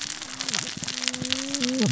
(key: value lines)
label: biophony, cascading saw
recorder: SoundTrap 600 or HydroMoth